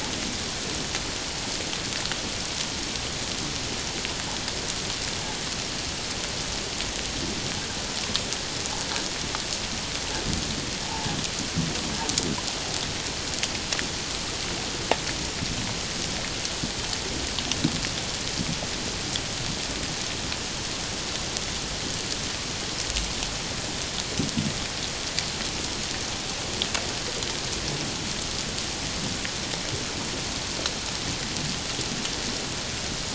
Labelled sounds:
10.8	11.1	humpback whale, 0.78 to 0.97 kHz

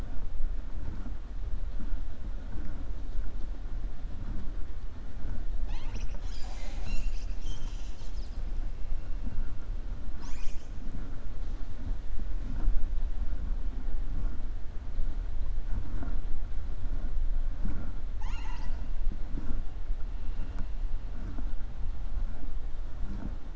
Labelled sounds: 18.1	18.8	killer whale, 0.87 to 7.7 kHz

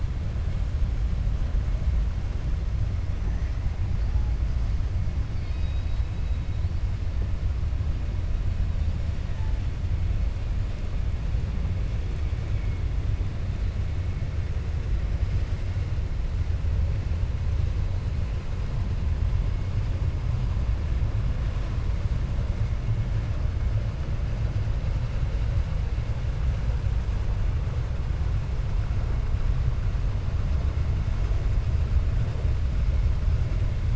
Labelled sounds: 5.3	6.4	killer whale, 2.2 to 5.0 kHz

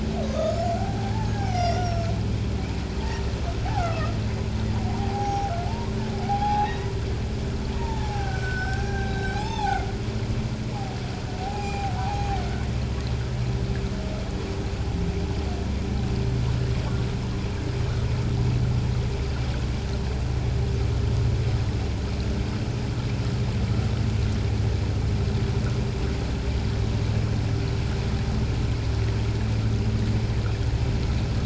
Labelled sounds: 0.8	2.1	humpback whale, 0.78 to 6.2 kHz
3.0	4.1	humpback whale, 0.84 to 1.6 kHz
4.9	5.5	humpback whale, 0.78 to 5.8 kHz
6.2	6.9	humpback whale, 0.78 to 3.4 kHz
7.7	9.9	humpback whale, 0.78 to 8.0 kHz
11.4	12.3	humpback whale, 0.78 to 7.3 kHz

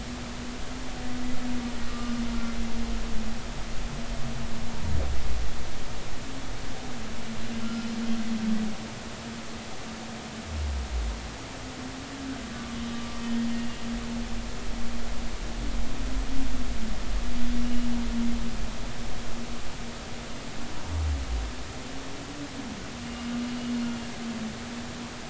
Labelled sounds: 1.9	2.2	humpback whale, 1.15 to 1.25 kHz
7.6	7.9	humpback whale, 1.2 to 1.4 kHz

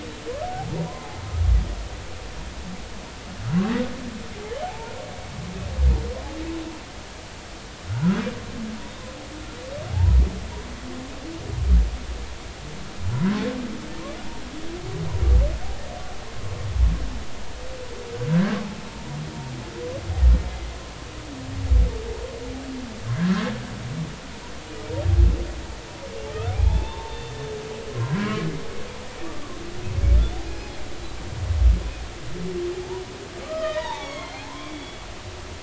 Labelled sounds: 0.7	1.1	humpback whale, 0.86 to 1.1 kHz
4.6	4.9	humpback whale, 0.80 to 0.99 kHz
7.9	8.2	humpback whale, 1.3 to 1.6 kHz
9.9	10.2	humpback whale, 0.80 to 1.0 kHz
18.3	19.2	humpback whale, 0.90 to 1.8 kHz
23.2	23.5	humpback whale, 1.5 to 1.8 kHz
26.5	27.3	humpback whale, 0.80 to 3.6 kHz
27.9	28.5	humpback whale, 0.93 to 1.2 kHz
29.2	29.6	humpback whale, 1.0 to 1.2 kHz
33.4	35.0	humpback whale, 0.80 to 4.3 kHz

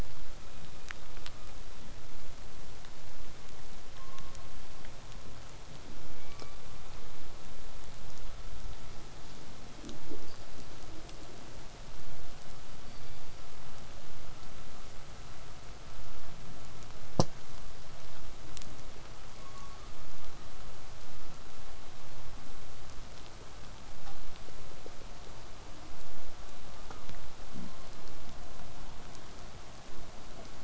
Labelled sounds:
0.4	1.7	killer whale, southern resident, call S17, 1.0 to 4.0 kHz
6.2	7.0	killer whale, southern resident, call S16, 0.97 to 5.0 kHz
12.8	13.6	killer whale, southern resident, call S16, 2.1 to 5.0 kHz
19.3	20.0	killer whale, southern resident, call S16, 0.93 to 2.5 kHz

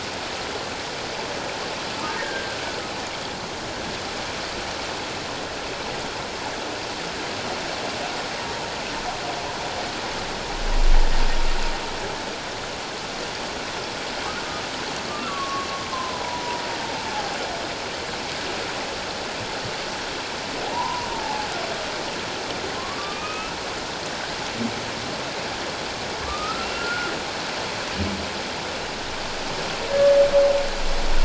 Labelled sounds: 2.2	2.6	humpback whale, 1.3 to 1.7 kHz
15.1	16.6	humpback whale, 0.91 to 1.4 kHz
17.1	17.3	humpback whale, 0.78 to 0.91 kHz
20.7	21.5	humpback whale, 0.78 to 1.2 kHz
22.8	23.6	humpback whale, 1.0 to 2.7 kHz
26.2	27.1	humpback whale, 1.0 to 1.5 kHz
29.9	30.2	humpback whale, 1.6 to 1.8 kHz

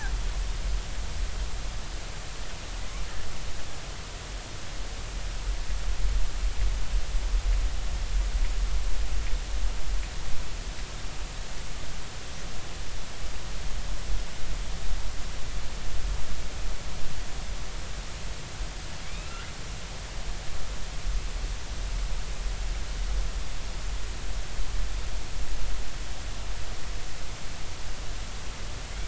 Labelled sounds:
19.0	19.4	killer whale, southern resident, J clan, 2.1 to 3.0 kHz

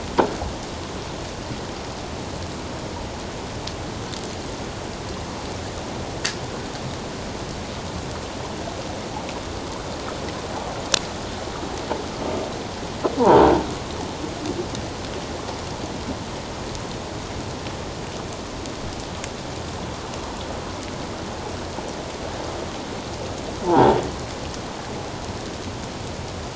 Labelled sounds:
13.2	13.4	croaking sound likely from a nearby submerged object, 0.78 to 1.1 kHz
23.6	24.0	croaking sound likely from a nearby submerged object, 0.78 to 1.0 kHz

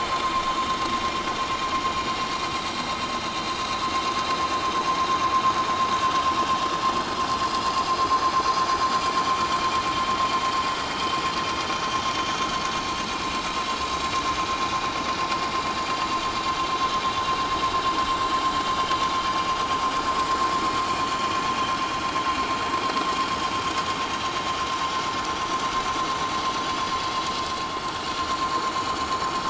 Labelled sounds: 1.8	2.1	vessel noise, 6.8 to 7.0 kHz
7.9	8.4	vessel noise, 6.0 to 6.3 kHz
13.4	13.7	vessel noise, 3.7 to 4.1 kHz
15.1	15.3	vessel noise, 6.8 to 7.0 kHz
24.5	24.9	vessel noise, 5.7 to 5.9 kHz

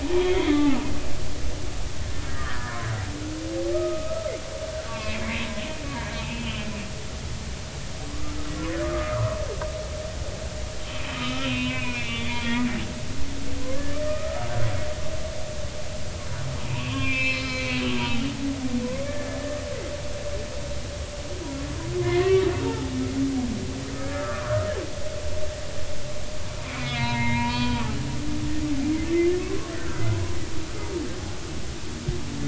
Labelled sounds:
0.1	0.8	humpback whale, 0.80 to 3.5 kHz
2.3	2.8	humpback whale, 1.1 to 2.0 kHz
3.7	5.2	humpback whale, 1.0 to 2.8 kHz
5.8	6.7	humpback whale, 1.6 to 3.2 kHz
8.1	8.4	humpback whale, 1.0 to 1.4 kHz
8.8	9.4	humpback whale, 0.96 to 1.4 kHz
11.2	12.4	humpback whale, 0.96 to 3.3 kHz
13.0	14.5	humpback whale, 1.1 to 3.6 kHz
16.7	17.8	humpback whale, 0.86 to 5.4 kHz
19.0	19.6	humpback whale, 1.7 to 1.9 kHz
22.0	22.9	humpback whale, 0.83 to 2.2 kHz
24.0	24.7	humpback whale, 0.96 to 1.8 kHz
26.7	29.7	humpback whale, 0.86 to 4.4 kHz

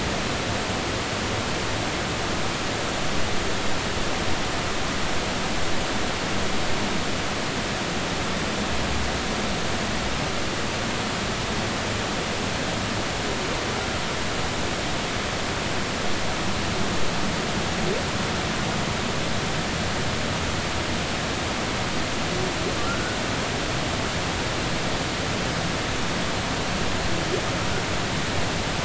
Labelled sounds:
22.8	23.2	humpback whale, 1.3 to 1.5 kHz

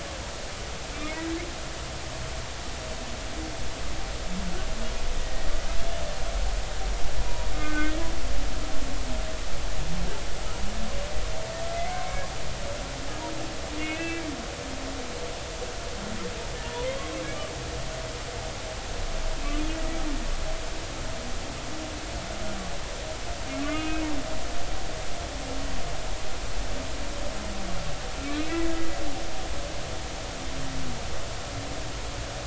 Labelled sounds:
5.2	5.5	humpback whale, 1.8 to 1.9 kHz
7.2	8.0	humpback whale, 0.93 to 2.2 kHz
11.9	12.2	humpback whale, 1.0 to 1.2 kHz
13.8	14.3	humpback whale, 1.5 to 2.7 kHz
16.6	17.0	humpback whale, 0.90 to 1.1 kHz
19.4	19.6	humpback whale, 2.5 to 2.7 kHz
23.6	24.0	humpback whale, 1.1 to 2.6 kHz

